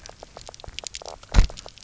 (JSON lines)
{"label": "biophony, knock croak", "recorder": "SoundTrap 300"}